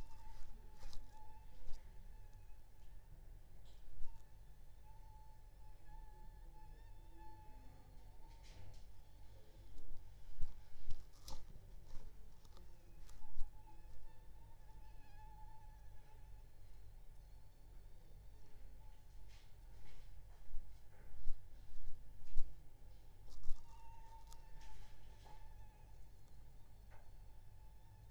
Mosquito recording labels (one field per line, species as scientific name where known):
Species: Aedes aegypti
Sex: female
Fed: unfed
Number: one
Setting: cup